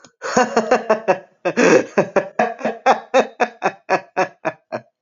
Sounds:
Laughter